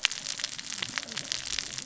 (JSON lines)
{"label": "biophony, cascading saw", "recorder": "SoundTrap 600 or HydroMoth"}